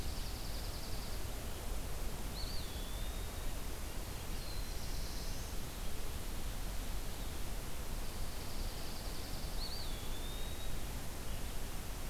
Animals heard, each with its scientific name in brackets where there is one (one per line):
Black-throated Blue Warbler (Setophaga caerulescens)
Eastern Wood-Pewee (Contopus virens)
Dark-eyed Junco (Junco hyemalis)